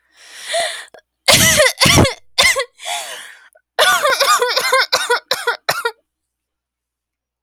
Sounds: Cough